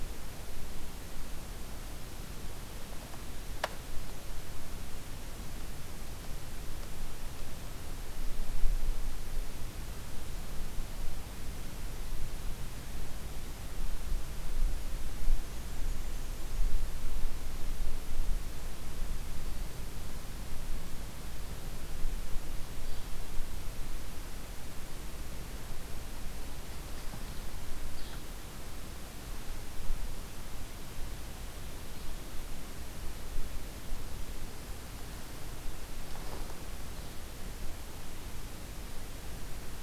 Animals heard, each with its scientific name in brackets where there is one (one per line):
Yellow-bellied Flycatcher (Empidonax flaviventris)
Black-and-white Warbler (Mniotilta varia)